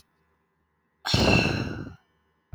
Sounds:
Sigh